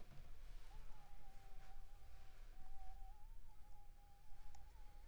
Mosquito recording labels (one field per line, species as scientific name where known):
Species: Anopheles funestus s.s.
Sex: female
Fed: unfed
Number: one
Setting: cup